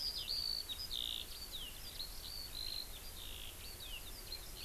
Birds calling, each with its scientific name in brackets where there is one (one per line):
Eurasian Skylark (Alauda arvensis)